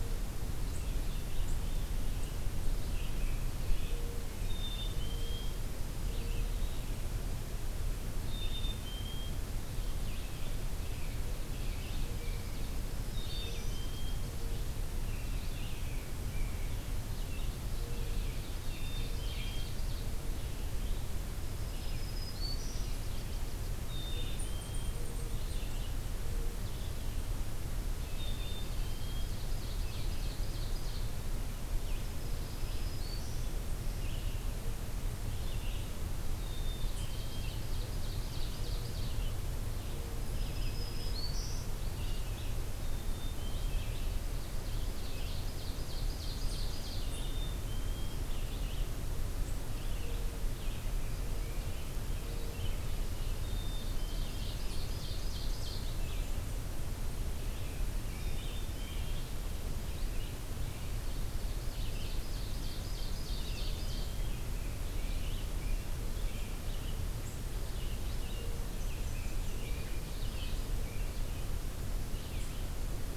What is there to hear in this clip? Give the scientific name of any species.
Vireo olivaceus, Poecile atricapillus, Seiurus aurocapilla, Turdus migratorius, Setophaga virens, Leiothlypis ruficapilla, unidentified call, Mniotilta varia